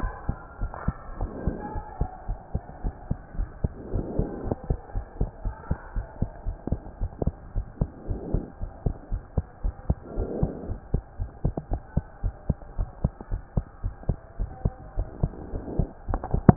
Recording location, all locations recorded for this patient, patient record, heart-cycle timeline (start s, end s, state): pulmonary valve (PV)
aortic valve (AV)+pulmonary valve (PV)+tricuspid valve (TV)+mitral valve (MV)
#Age: Child
#Sex: Female
#Height: 122.0 cm
#Weight: 23.6 kg
#Pregnancy status: False
#Murmur: Absent
#Murmur locations: nan
#Most audible location: nan
#Systolic murmur timing: nan
#Systolic murmur shape: nan
#Systolic murmur grading: nan
#Systolic murmur pitch: nan
#Systolic murmur quality: nan
#Diastolic murmur timing: nan
#Diastolic murmur shape: nan
#Diastolic murmur grading: nan
#Diastolic murmur pitch: nan
#Diastolic murmur quality: nan
#Outcome: Abnormal
#Campaign: 2015 screening campaign
0.00	0.14	S1
0.14	0.26	systole
0.26	0.38	S2
0.38	0.60	diastole
0.60	0.72	S1
0.72	0.84	systole
0.84	0.98	S2
0.98	1.18	diastole
1.18	1.32	S1
1.32	1.44	systole
1.44	1.58	S2
1.58	1.74	diastole
1.74	1.84	S1
1.84	1.98	systole
1.98	2.08	S2
2.08	2.26	diastole
2.26	2.38	S1
2.38	2.51	systole
2.51	2.62	S2
2.62	2.82	diastole
2.82	2.94	S1
2.94	3.08	systole
3.08	3.18	S2
3.18	3.36	diastole
3.36	3.50	S1
3.50	3.60	systole
3.60	3.72	S2
3.72	3.92	diastole
3.92	4.06	S1
4.06	4.16	systole
4.16	4.30	S2
4.30	4.44	diastole
4.44	4.56	S1
4.56	4.68	systole
4.68	4.78	S2
4.78	4.94	diastole
4.94	5.06	S1
5.06	5.18	systole
5.18	5.30	S2
5.30	5.44	diastole
5.44	5.54	S1
5.54	5.66	systole
5.66	5.78	S2
5.78	5.94	diastole
5.94	6.06	S1
6.06	6.18	systole
6.18	6.30	S2
6.30	6.46	diastole
6.46	6.56	S1
6.56	6.68	systole
6.68	6.80	S2
6.80	7.00	diastole
7.00	7.12	S1
7.12	7.22	systole
7.22	7.34	S2
7.34	7.54	diastole
7.54	7.66	S1
7.66	7.78	systole
7.78	7.90	S2
7.90	8.08	diastole
8.08	8.22	S1
8.22	8.32	systole
8.32	8.46	S2
8.46	8.59	diastole
8.59	8.70	S1
8.70	8.82	systole
8.82	8.94	S2
8.94	9.10	diastole
9.10	9.22	S1
9.22	9.36	systole
9.36	9.46	S2
9.46	9.62	diastole
9.62	9.74	S1
9.74	9.88	systole
9.88	10.00	S2
10.00	10.16	diastole
10.16	10.30	S1
10.30	10.40	systole
10.40	10.54	S2
10.54	10.68	diastole
10.68	10.80	S1
10.80	10.92	systole
10.92	11.04	S2
11.04	11.18	diastole
11.18	11.30	S1
11.30	11.43	systole
11.43	11.56	S2
11.56	11.68	diastole
11.68	11.82	S1
11.82	11.94	systole
11.94	12.06	S2
12.06	12.21	diastole
12.21	12.34	S1
12.34	12.47	systole
12.47	12.58	S2
12.58	12.75	diastole
12.75	12.90	S1
12.90	13.00	systole
13.00	13.12	S2
13.12	13.30	diastole
13.30	13.42	S1
13.42	13.56	systole
13.56	13.66	S2
13.66	13.81	diastole
13.81	13.94	S1
13.94	14.04	systole
14.04	14.18	S2
14.18	14.38	diastole
14.38	14.52	S1
14.52	14.62	systole
14.62	14.74	S2
14.74	14.96	diastole
14.96	15.08	S1
15.08	15.18	systole
15.18	15.32	S2
15.32	15.50	diastole
15.50	15.64	S1
15.64	15.76	systole
15.76	15.90	S2
15.90	16.08	diastole
16.08	16.24	S1